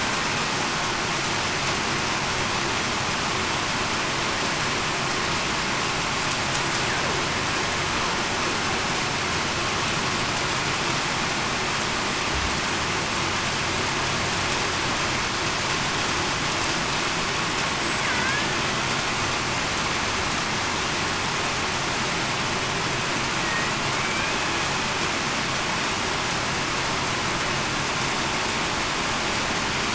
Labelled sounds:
23.9	24.3	killer whale, Bigg's (transient), 2.2 to 2.5 kHz

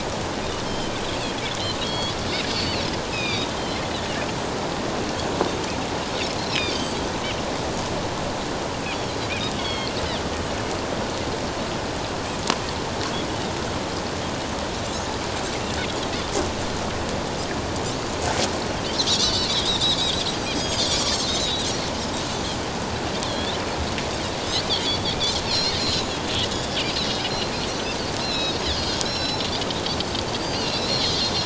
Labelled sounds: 1.8	2.8	Pacific white-sided dolphin, 3.2 to 4.7 kHz
3.1	3.4	Pacific white-sided dolphin, 2.2 to 5.2 kHz
6.5	7.0	Pacific white-sided dolphin, 4.4 to 5.3 kHz
8.9	10.0	Pacific white-sided dolphin, 2.1 to 4.6 kHz
19.1	20.0	Pacific white-sided dolphin, 2.6 to 4.6 kHz
20.5	21.7	Pacific white-sided dolphin, 3.5 to 6.7 kHz
23.2	23.6	Pacific white-sided dolphin, 3.2 to 4.0 kHz
25.4	26.1	Pacific white-sided dolphin, 3.8 to 4.5 kHz
26.5	27.2	Pacific white-sided dolphin, 3.3 to 4.2 kHz
27.7	29.5	Pacific white-sided dolphin, 2.5 to 8.0 kHz
29.9	31.1	Pacific white-sided dolphin, 2.6 to 5.8 kHz

